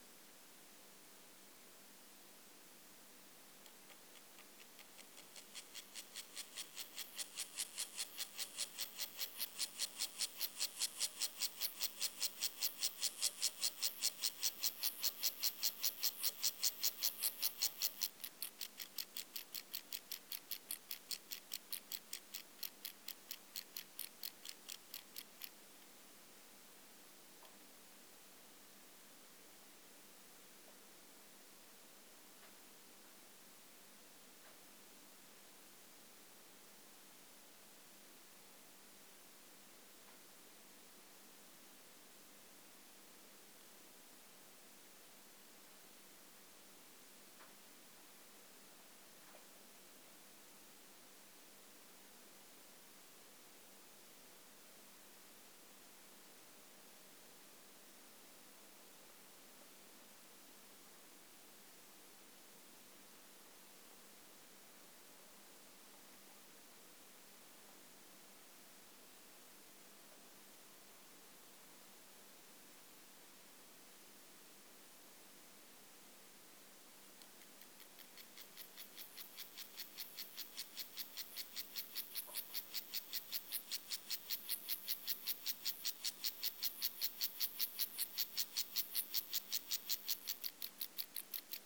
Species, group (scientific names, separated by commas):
Gomphocerus sibiricus, Orthoptera